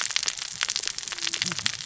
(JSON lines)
{"label": "biophony, cascading saw", "recorder": "SoundTrap 600 or HydroMoth"}